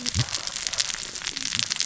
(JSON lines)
{"label": "biophony, cascading saw", "recorder": "SoundTrap 600 or HydroMoth"}